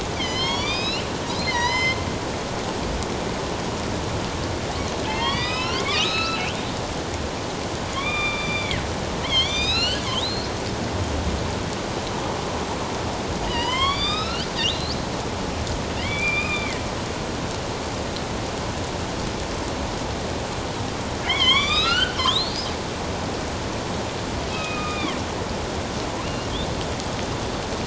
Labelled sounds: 0.1	2.0	killer whale, northern resident, A clan, AB subclan, 0.84 to 6.6 kHz
5.1	6.5	killer whale, northern resident, A clan, AB subclan, 0.81 to 5.8 kHz
7.9	10.5	killer whale, northern resident, A clan, AB subclan, 1.0 to 7.7 kHz
13.5	15.0	killer whale, northern resident, A clan, AB subclan, 0.91 to 5.8 kHz
16.0	16.8	killer whale, northern resident, A clan, AB subclan, 1.2 to 3.8 kHz
21.2	22.6	killer whale, northern resident, A clan, AB subclan, 0.97 to 6.6 kHz
24.5	25.2	killer whale, northern resident, A clan, AB subclan, 1.0 to 3.8 kHz
26.2	26.5	killer whale, northern resident, A clan, AB subclan, 2.5 to 2.9 kHz

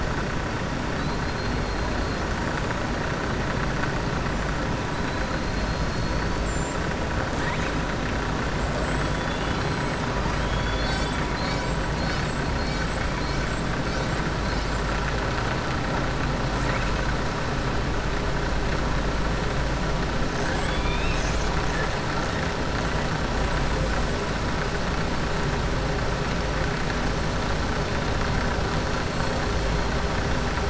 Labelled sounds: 0.9	1.9	killer whale, southern resident, 3.9 to 4.3 kHz
5.4	6.3	killer whale, southern resident, 4.2 to 4.5 kHz

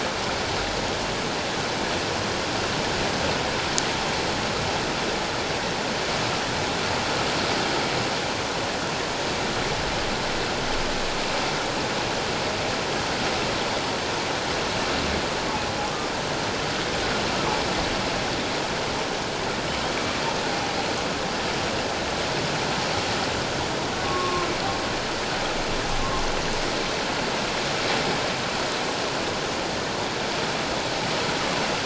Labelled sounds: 24.0	24.5	humpback whale, 1.0 to 1.2 kHz

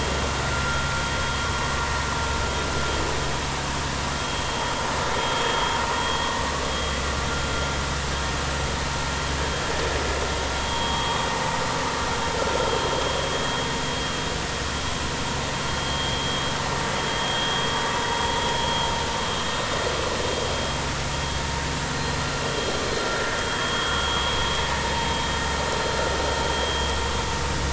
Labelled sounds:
5.2	5.4	vessel noise, 3.2 to 3.3 kHz
10.6	11.1	vessel noise, 1.1 to 3.5 kHz
15.8	16.2	vessel noise, 3.2 to 3.4 kHz
17.1	17.5	vessel noise, 3.2 to 3.4 kHz
23.4	24.4	vessel noise, 3.2 to 3.4 kHz

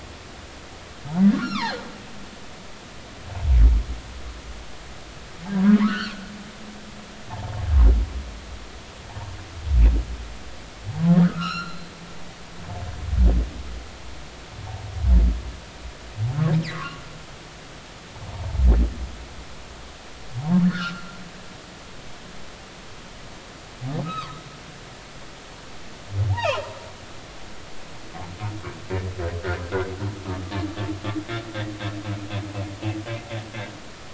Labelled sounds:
1.3	1.8	humpback whale, 0.80 to 5.7 kHz
5.5	6.2	humpback whale, 0.93 to 4.6 kHz
11.2	11.9	humpback whale, 1.1 to 7.2 kHz
16.7	17.0	humpback whale, 0.99 to 1.3 kHz
21.6	22.2	humpback whale, 1.1 to 1.9 kHz
24.0	24.4	humpback whale, 0.96 to 1.4 kHz
26.3	26.6	humpback whale, 0.80 to 2.9 kHz
29.6	29.9	humpback whale, 1.3 to 1.7 kHz

